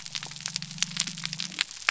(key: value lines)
label: biophony
recorder: SoundTrap 300